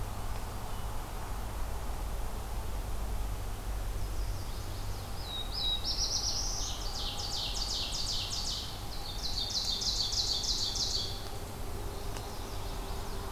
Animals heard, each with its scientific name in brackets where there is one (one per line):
Mourning Warbler (Geothlypis philadelphia)
Black-throated Blue Warbler (Setophaga caerulescens)
Ovenbird (Seiurus aurocapilla)
Chestnut-sided Warbler (Setophaga pensylvanica)